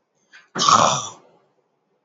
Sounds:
Throat clearing